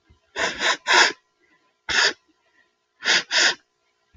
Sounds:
Sniff